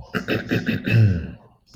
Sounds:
Throat clearing